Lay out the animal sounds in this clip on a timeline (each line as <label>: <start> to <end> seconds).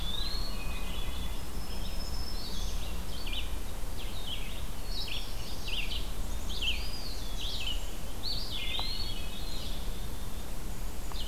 Eastern Wood-Pewee (Contopus virens): 0.0 to 0.7 seconds
Red-eyed Vireo (Vireo olivaceus): 0.0 to 11.3 seconds
Hermit Thrush (Catharus guttatus): 0.1 to 1.5 seconds
Black-throated Green Warbler (Setophaga virens): 1.4 to 2.9 seconds
Hermit Thrush (Catharus guttatus): 5.0 to 5.9 seconds
Black-capped Chickadee (Poecile atricapillus): 6.0 to 7.9 seconds
Eastern Wood-Pewee (Contopus virens): 6.6 to 7.3 seconds
Eastern Wood-Pewee (Contopus virens): 8.1 to 9.3 seconds
Hermit Thrush (Catharus guttatus): 8.4 to 9.7 seconds
Black-capped Chickadee (Poecile atricapillus): 9.4 to 10.5 seconds
Black-and-white Warbler (Mniotilta varia): 10.6 to 11.3 seconds